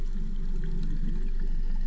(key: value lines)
label: anthrophony, boat engine
recorder: SoundTrap 300